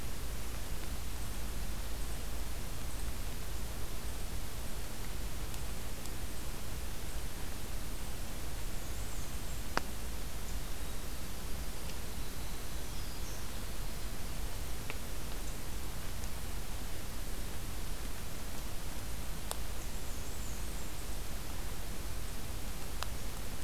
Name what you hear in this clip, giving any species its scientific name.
Mniotilta varia, Troglodytes hiemalis, Setophaga virens